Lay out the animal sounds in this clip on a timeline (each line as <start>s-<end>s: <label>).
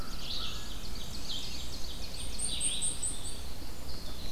0.0s-0.8s: American Crow (Corvus brachyrhynchos)
0.0s-0.9s: Black-throated Blue Warbler (Setophaga caerulescens)
0.0s-4.3s: Red-eyed Vireo (Vireo olivaceus)
0.4s-2.5s: Ovenbird (Seiurus aurocapilla)
0.7s-3.6s: Black-and-white Warbler (Mniotilta varia)